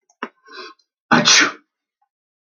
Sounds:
Sneeze